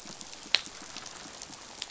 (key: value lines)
label: biophony, pulse
recorder: SoundTrap 500